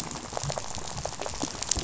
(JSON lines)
{"label": "biophony, rattle", "recorder": "SoundTrap 500"}